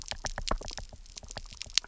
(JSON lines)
{"label": "biophony, knock", "recorder": "SoundTrap 300"}